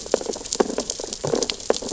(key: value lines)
label: biophony, sea urchins (Echinidae)
recorder: SoundTrap 600 or HydroMoth